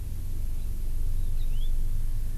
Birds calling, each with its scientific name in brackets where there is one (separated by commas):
House Finch (Haemorhous mexicanus)